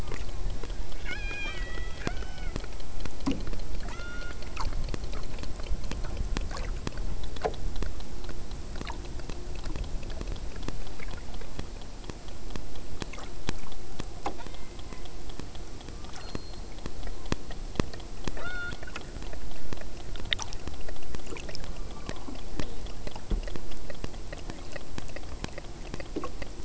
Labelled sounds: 0.0	2.6	killer whale, southern Alaska resident, 0.59 to 8.0 kHz
3.8	4.6	killer whale, southern Alaska resident, 0.61 to 6.5 kHz
14.3	15.2	killer whale, southern Alaska resident, 0.61 to 3.9 kHz
15.8	16.8	killer whale, southern Alaska resident, 0.69 to 8.0 kHz
18.3	19.0	killer whale, southern Alaska resident, 0.25 to 4.6 kHz
21.7	22.4	killer whale, southern Alaska resident, 0.69 to 2.6 kHz

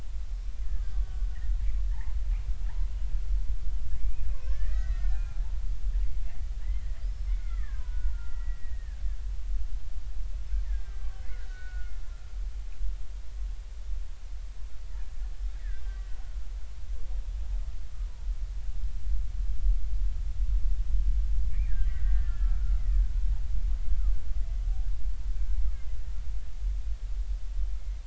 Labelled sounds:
0.6	1.4	killer whale, Bigg's (transient), 1.4 to 1.8 kHz
1.9	2.2	killer whale, Bigg's (transient), 0.80 to 1.1 kHz
4.0	5.5	killer whale, Bigg's (transient), 0.80 to 5.1 kHz
7.0	9.0	killer whale, Bigg's (transient), 0.86 to 5.4 kHz
10.6	12.0	killer whale, Bigg's (transient), 1.4 to 4.2 kHz
15.6	16.3	killer whale, Bigg's (transient), 1.4 to 2.0 kHz
21.7	23.0	killer whale, Bigg's (transient), 1.1 to 2.1 kHz

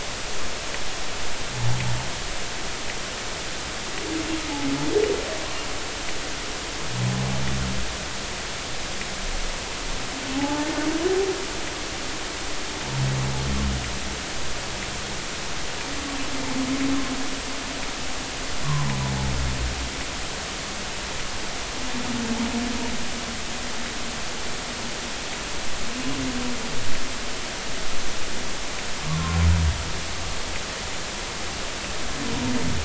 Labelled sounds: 10.3	10.7	humpback whale, 0.80 to 0.93 kHz
29.1	29.4	humpback whale, 0.93 to 1.2 kHz

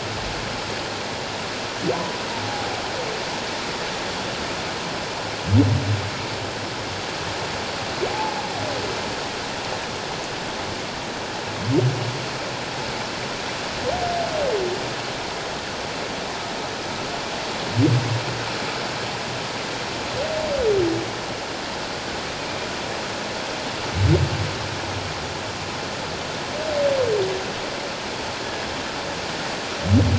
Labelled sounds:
1.9	2.7	humpback whale, 0.78 to 1.0 kHz
8.1	8.4	humpback whale, 0.78 to 0.94 kHz

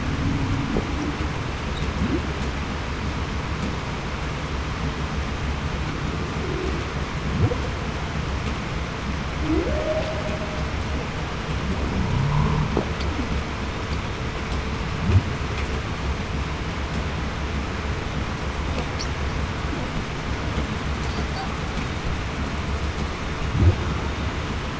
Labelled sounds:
9.6	10.1	humpback whale, 0.47 to 0.73 kHz

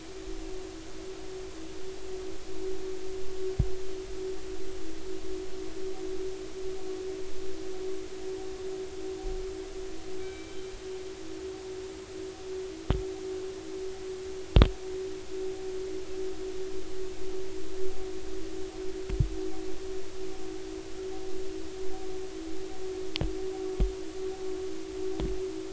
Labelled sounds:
10.2	10.6	killer whale, northern resident, 2.3 to 3.9 kHz

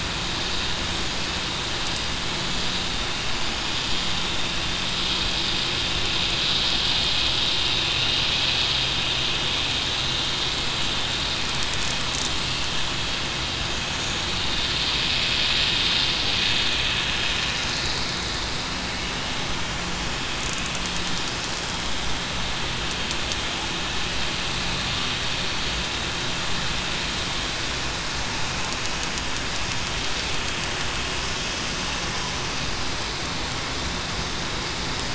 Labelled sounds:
2.9	3.3	vessel noise, 2.79 to 2.83 kHz
7.9	8.2	vessel noise, 2.8 to 2.9 kHz

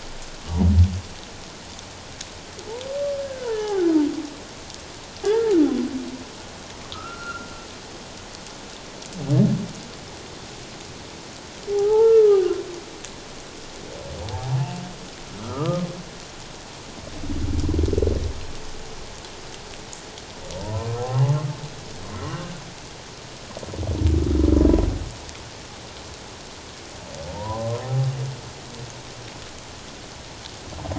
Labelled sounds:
3.2	3.9	humpback whale, 0.78 to 1.8 kHz
5.2	5.5	humpback whale, 1.5 to 1.9 kHz
6.9	7.5	humpback whale, 1.2 to 1.6 kHz
11.7	12.5	humpback whale, 0.78 to 1.4 kHz
14.3	15.9	humpback whale, 0.78 to 1.4 kHz
20.5	20.9	humpback whale, 0.88 to 1.1 kHz
27.3	27.8	humpback whale, 0.88 to 1.1 kHz

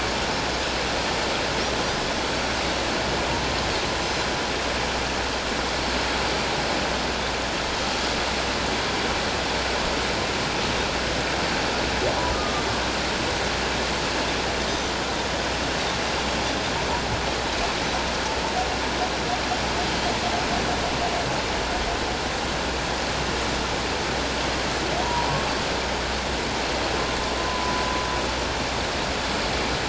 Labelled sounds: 12.3	12.7	Pacific white-sided dolphin, 1.1 to 1.3 kHz
14.7	14.9	Pacific white-sided dolphin, 5.8 to 6.2 kHz
25.0	25.5	humpback whale, 0.84 to 1.1 kHz
27.5	27.7	humpback whale, 0.94 to 1.1 kHz

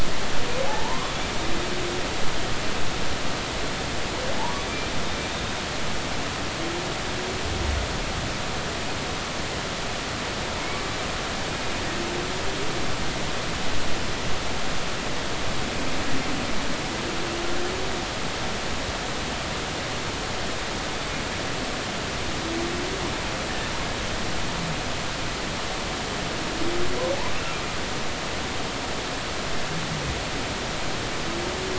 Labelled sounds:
0.7	1.1	humpback whale, 0.80 to 1.2 kHz

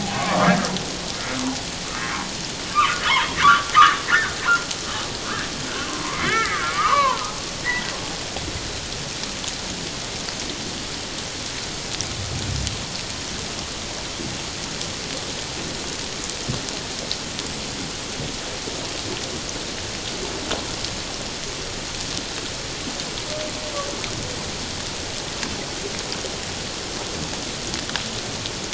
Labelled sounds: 2.7	3.7	humpback whale, 0.94 to 3.4 kHz
4.0	4.4	humpback whale, 1.3 to 2.2 kHz
6.3	7.3	humpback whale, 0.88 to 3.0 kHz
7.6	7.9	humpback whale, 1.8 to 2.1 kHz

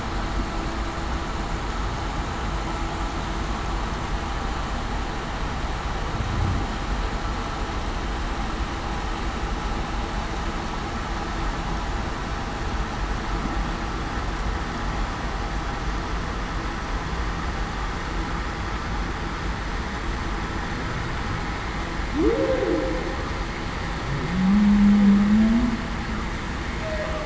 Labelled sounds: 22.2	22.9	humpback whale, 0.38 to 0.56 kHz
24.3	25.7	humpback whale, 0.19 to 0.28 kHz
26.8	27.2	humpback whale, 0.54 to 0.68 kHz

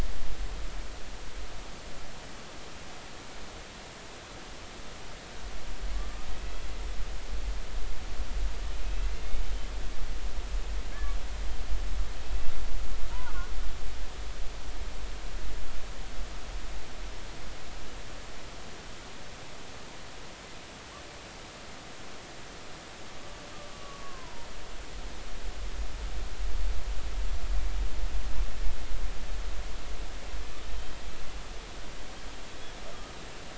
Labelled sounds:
8.8	9.1	killer whale, Bigg's (transient), 2.5 to 2.7 kHz
9.4	9.7	killer whale, Bigg's (transient), 3.0 to 3.1 kHz
13.2	13.5	killer whale, Bigg's (transient), 1.0 to 1.5 kHz
23.7	24.5	killer whale, Bigg's (transient), 0.90 to 1.2 kHz
30.8	31.0	killer whale, Bigg's (transient), 3.1 to 3.2 kHz

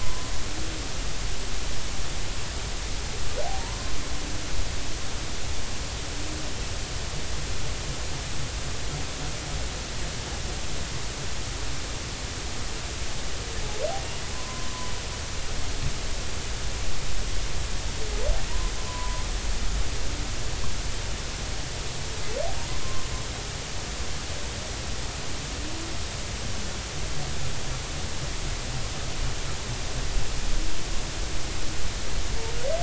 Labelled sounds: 0.0	0.3	humpback whale, 0.90 to 1.1 kHz
3.6	3.9	humpback whale, 0.90 to 1.1 kHz
14.3	14.7	humpback whale, 0.96 to 1.1 kHz
18.9	19.2	humpback whale, 0.93 to 1.1 kHz
22.8	23.1	humpback whale, 0.99 to 1.1 kHz

